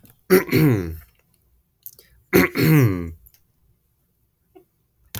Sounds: Throat clearing